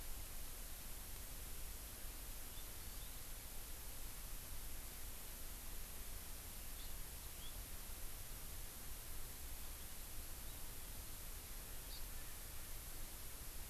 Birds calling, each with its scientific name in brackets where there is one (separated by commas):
Hawaii Amakihi (Chlorodrepanis virens), Erckel's Francolin (Pternistis erckelii), House Finch (Haemorhous mexicanus)